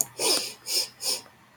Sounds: Sniff